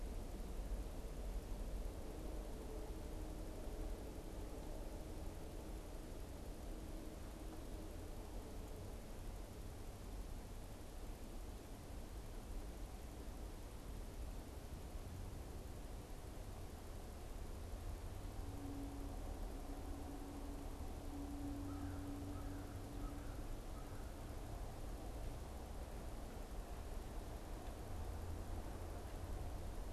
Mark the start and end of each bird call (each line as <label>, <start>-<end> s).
American Crow (Corvus brachyrhynchos), 21.3-24.3 s